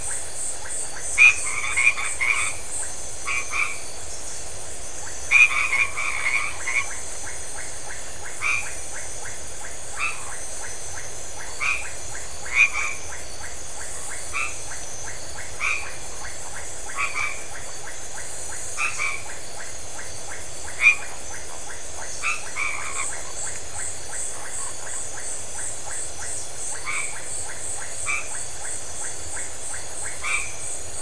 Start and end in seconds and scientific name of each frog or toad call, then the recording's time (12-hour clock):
0.0	3.9	Boana albomarginata
0.0	30.8	Leptodactylus notoaktites
5.1	7.2	Boana albomarginata
8.1	23.2	Boana albomarginata
26.5	31.0	Boana albomarginata
11:00pm